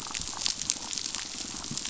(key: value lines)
label: biophony, damselfish
recorder: SoundTrap 500